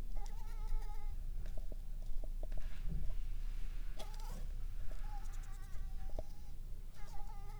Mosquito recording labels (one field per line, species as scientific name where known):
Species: Anopheles arabiensis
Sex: female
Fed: unfed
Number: one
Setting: cup